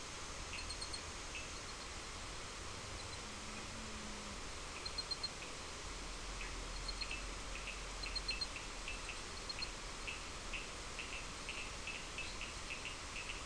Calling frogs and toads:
Cochran's lime tree frog (Sphaenorhynchus surdus), fine-lined tree frog (Boana leptolineata)
6:30pm

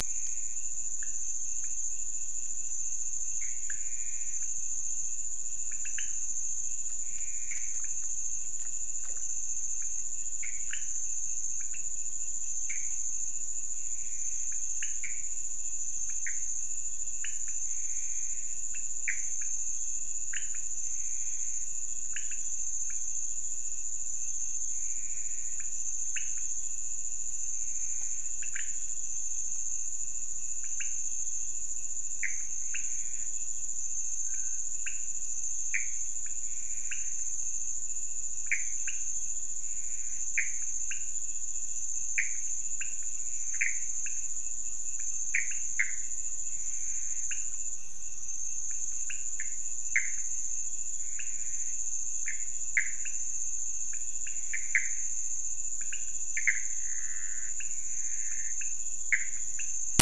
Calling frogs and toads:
pointedbelly frog (Leptodactylus podicipinus), Pithecopus azureus
3:30am

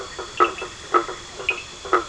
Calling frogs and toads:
two-colored oval frog (Elachistocleis bicolor), blacksmith tree frog (Boana faber), Cochran's lime tree frog (Sphaenorhynchus surdus)
9:30pm

